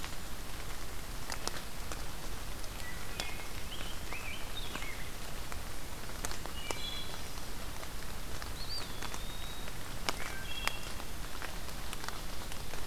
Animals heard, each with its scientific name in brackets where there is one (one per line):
Wood Thrush (Hylocichla mustelina)
Eastern Wood-Pewee (Contopus virens)
Rose-breasted Grosbeak (Pheucticus ludovicianus)